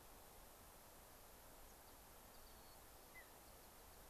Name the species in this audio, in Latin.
Zonotrichia leucophrys, Sialia currucoides